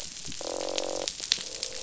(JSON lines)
{"label": "biophony, croak", "recorder": "SoundTrap 500"}